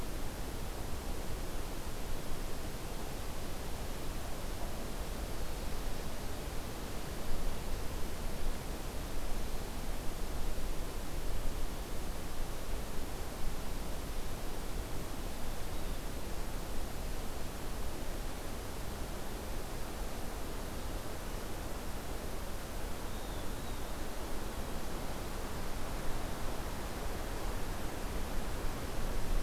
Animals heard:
forest ambience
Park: Hubbard Brook Experimental Forest